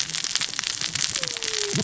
{"label": "biophony, cascading saw", "recorder": "SoundTrap 600 or HydroMoth"}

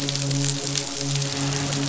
{"label": "biophony, midshipman", "recorder": "SoundTrap 500"}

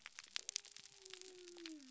{"label": "biophony", "recorder": "SoundTrap 300"}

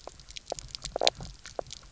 {"label": "biophony, knock croak", "recorder": "SoundTrap 300"}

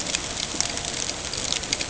{"label": "ambient", "recorder": "HydroMoth"}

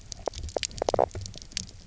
{"label": "biophony, knock croak", "recorder": "SoundTrap 300"}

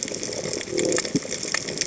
{"label": "biophony", "recorder": "HydroMoth"}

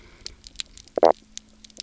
{"label": "biophony, knock croak", "recorder": "SoundTrap 300"}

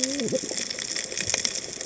{"label": "biophony, cascading saw", "recorder": "HydroMoth"}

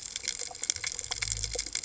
{"label": "biophony", "recorder": "HydroMoth"}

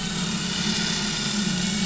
{"label": "anthrophony, boat engine", "recorder": "SoundTrap 500"}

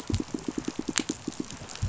{"label": "biophony, pulse", "recorder": "SoundTrap 500"}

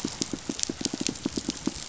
{"label": "biophony, pulse", "recorder": "SoundTrap 500"}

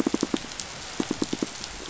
{"label": "biophony, pulse", "recorder": "SoundTrap 500"}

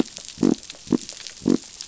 {"label": "biophony", "recorder": "SoundTrap 500"}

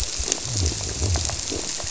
{"label": "biophony, squirrelfish (Holocentrus)", "recorder": "SoundTrap 300"}
{"label": "biophony", "recorder": "SoundTrap 300"}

